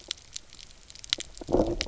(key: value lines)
label: biophony, low growl
recorder: SoundTrap 300